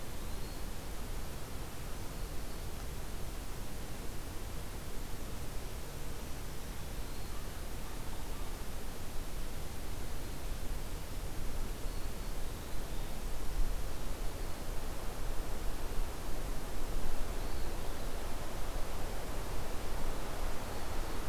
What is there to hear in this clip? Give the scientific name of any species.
Contopus virens, Setophaga virens